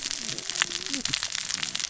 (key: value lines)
label: biophony, cascading saw
recorder: SoundTrap 600 or HydroMoth